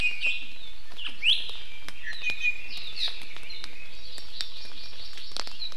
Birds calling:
Hawaii Amakihi (Chlorodrepanis virens)
Iiwi (Drepanis coccinea)
Red-billed Leiothrix (Leiothrix lutea)

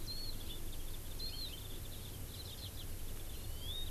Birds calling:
Hawaii Amakihi (Chlorodrepanis virens)
Warbling White-eye (Zosterops japonicus)

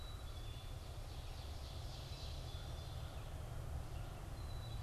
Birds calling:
Red-eyed Vireo (Vireo olivaceus)
Ovenbird (Seiurus aurocapilla)
Black-capped Chickadee (Poecile atricapillus)
American Crow (Corvus brachyrhynchos)

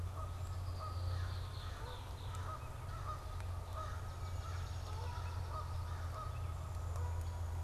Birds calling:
Swamp Sparrow (Melospiza georgiana)
Red-winged Blackbird (Agelaius phoeniceus)
Canada Goose (Branta canadensis)

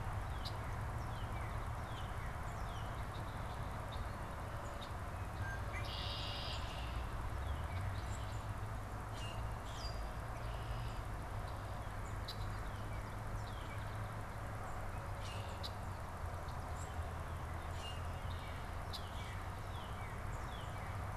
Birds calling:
Red-winged Blackbird (Agelaius phoeniceus)
Northern Cardinal (Cardinalis cardinalis)
Common Grackle (Quiscalus quiscula)

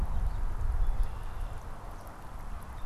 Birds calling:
Red-winged Blackbird (Agelaius phoeniceus)

